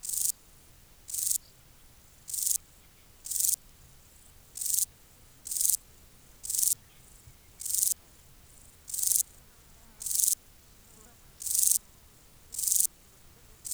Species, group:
Euchorthippus declivus, Orthoptera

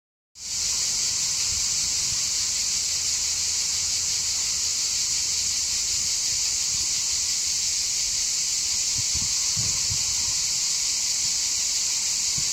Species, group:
Cicada orni, Cicadidae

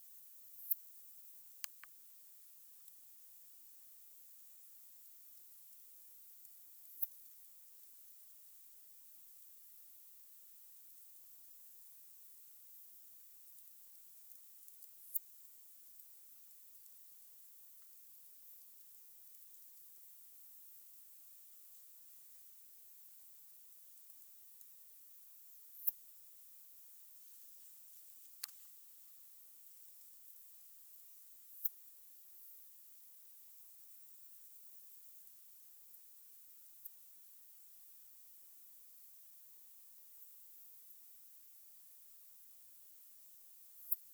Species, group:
Poecilimon affinis, Orthoptera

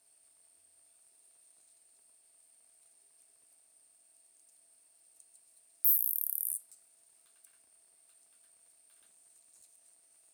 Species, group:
Isophya longicaudata, Orthoptera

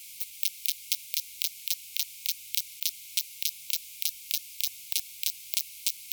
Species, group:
Poecilimon propinquus, Orthoptera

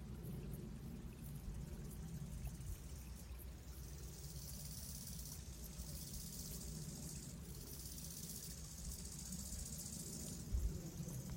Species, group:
Chorthippus biguttulus, Orthoptera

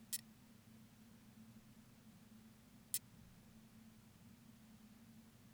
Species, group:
Leptophyes punctatissima, Orthoptera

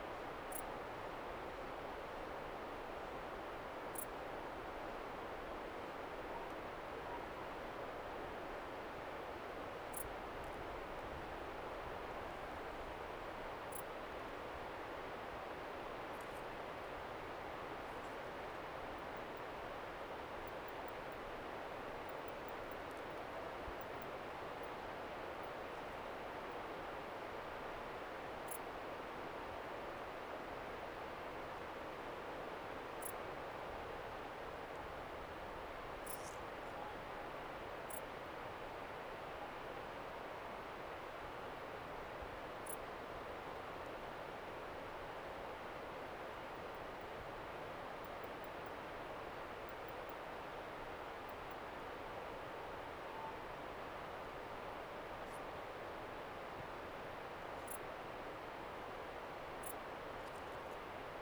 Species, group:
Pholidoptera griseoaptera, Orthoptera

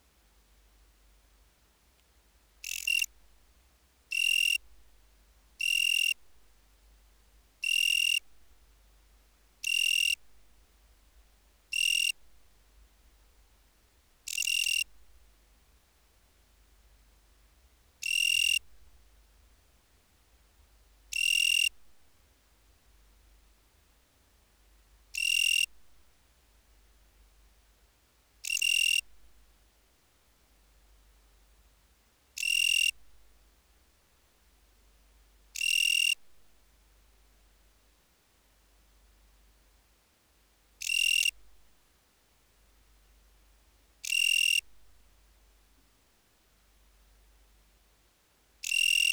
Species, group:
Oecanthus pellucens, Orthoptera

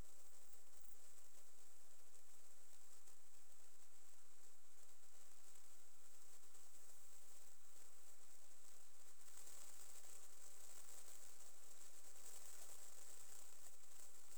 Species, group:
Platycleis albopunctata, Orthoptera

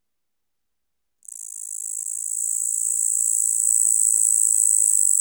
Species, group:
Tettigonia caudata, Orthoptera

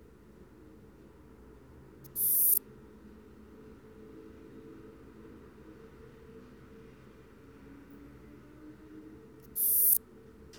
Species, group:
Poecilimon sanctipauli, Orthoptera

